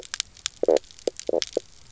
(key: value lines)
label: biophony, knock croak
recorder: SoundTrap 300